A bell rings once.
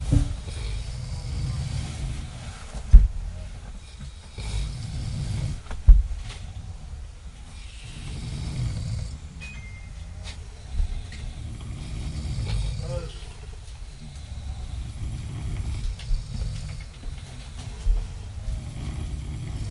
9.4 9.7

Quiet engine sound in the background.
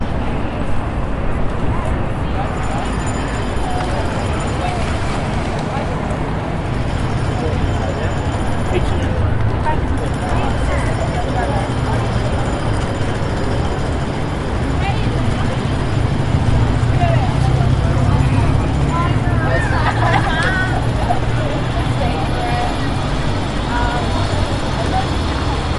16.0 21.1

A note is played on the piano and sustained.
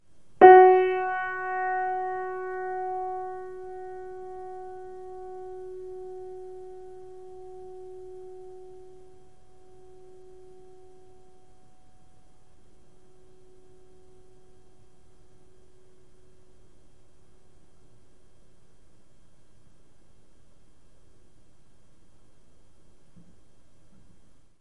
0.3 18.2

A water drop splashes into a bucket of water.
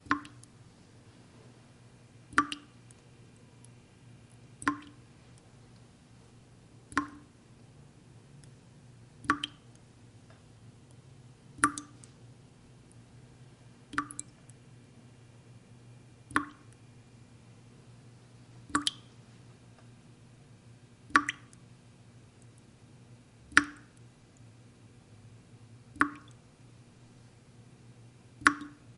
0.0 0.6, 2.3 2.8, 4.6 5.0, 6.9 7.4, 9.2 9.7, 11.6 12.1, 13.9 14.4, 16.3 16.8, 18.7 19.1, 21.0 21.6, 23.5 24.0, 25.9 26.4, 28.4 28.9

